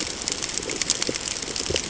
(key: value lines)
label: ambient
recorder: HydroMoth